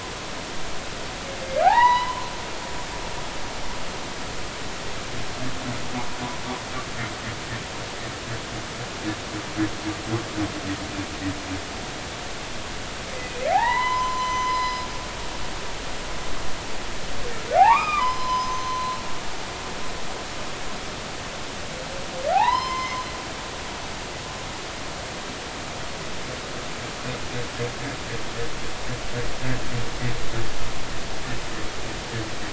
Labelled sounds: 1.6	2.2	humpback whale, 0.80 to 4.0 kHz
13.5	14.9	humpback whale, 0.80 to 6.1 kHz
17.6	18.9	humpback whale, 0.80 to 6.2 kHz
22.3	23.0	humpback whale, 0.80 to 5.2 kHz

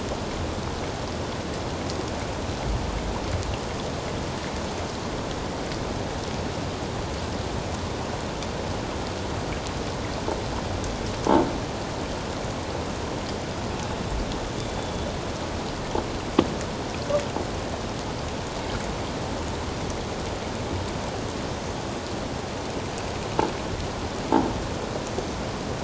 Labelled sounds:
14.6	14.9	killer whale, 3.4 to 3.6 kHz

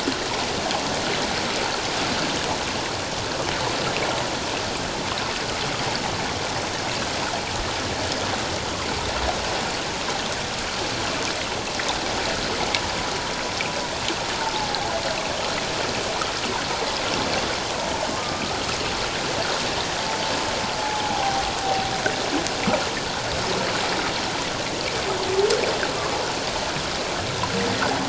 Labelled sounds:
14.4	14.9	humpback whale, 0.78 to 0.94 kHz
20.8	21.4	humpback whale, 0.78 to 0.91 kHz

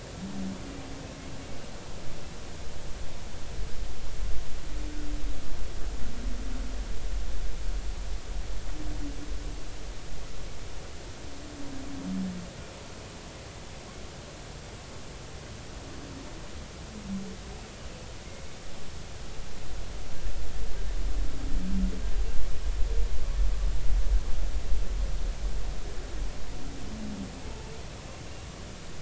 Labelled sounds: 18.3	18.6	humpback whale, 2.1 to 2.3 kHz
27.4	27.7	humpback whale, 0.83 to 0.96 kHz

